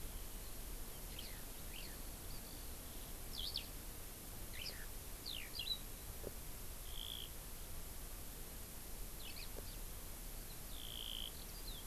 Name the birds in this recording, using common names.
Eurasian Skylark, Hawaii Amakihi